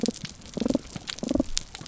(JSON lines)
{"label": "biophony", "recorder": "SoundTrap 300"}